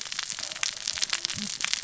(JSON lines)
{"label": "biophony, cascading saw", "recorder": "SoundTrap 600 or HydroMoth"}